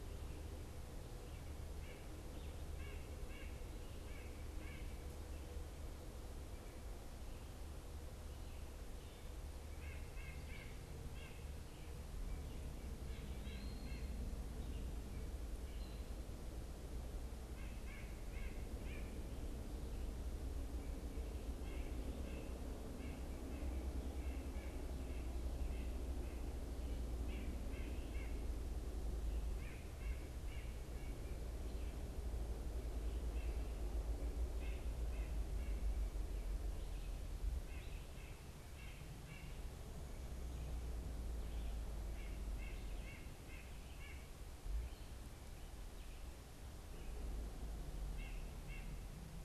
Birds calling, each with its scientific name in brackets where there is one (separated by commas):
White-breasted Nuthatch (Sitta carolinensis)